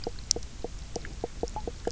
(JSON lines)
{"label": "biophony, knock croak", "recorder": "SoundTrap 300"}